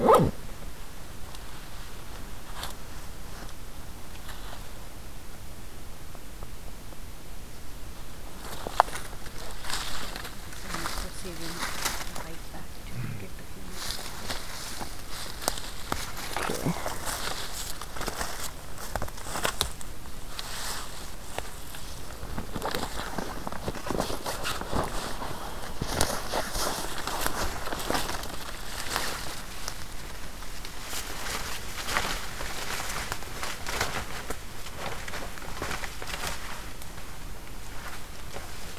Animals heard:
forest ambience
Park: Hubbard Brook Experimental Forest